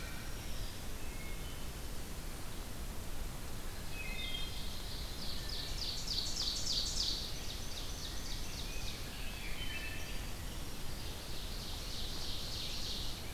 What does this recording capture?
Wood Thrush, Black-throated Green Warbler, Ovenbird, Rose-breasted Grosbeak